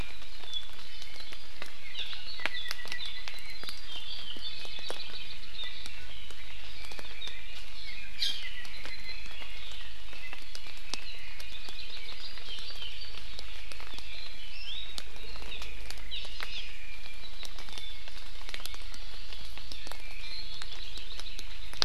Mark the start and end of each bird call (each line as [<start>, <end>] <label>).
[1.85, 2.05] Hawaii Amakihi (Chlorodrepanis virens)
[2.35, 3.55] Apapane (Himatione sanguinea)
[4.55, 5.75] Hawaii Creeper (Loxops mana)
[6.75, 9.65] Red-billed Leiothrix (Leiothrix lutea)
[8.15, 8.45] Hawaii Amakihi (Chlorodrepanis virens)
[11.45, 12.25] Hawaii Creeper (Loxops mana)
[14.35, 14.95] Iiwi (Drepanis coccinea)
[15.45, 15.65] Hawaii Amakihi (Chlorodrepanis virens)
[16.15, 16.65] Hawaii Amakihi (Chlorodrepanis virens)
[20.55, 21.75] Hawaii Creeper (Loxops mana)